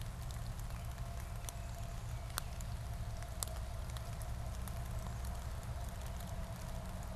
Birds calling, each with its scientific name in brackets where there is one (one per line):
Black-capped Chickadee (Poecile atricapillus)
Baltimore Oriole (Icterus galbula)